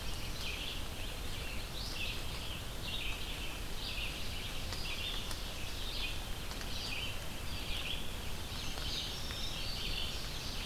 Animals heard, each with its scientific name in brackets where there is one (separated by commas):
Indigo Bunting (Passerina cyanea), Red-eyed Vireo (Vireo olivaceus), Ovenbird (Seiurus aurocapilla), Black-throated Blue Warbler (Setophaga caerulescens)